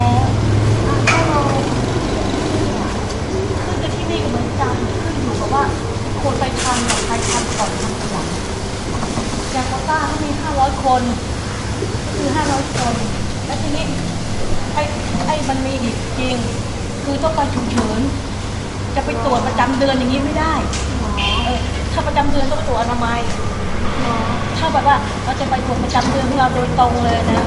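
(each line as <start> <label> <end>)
0.0 Cars pass by on a street. 27.5
0.0 Two women are talking near a street. 27.5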